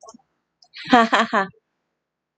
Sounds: Laughter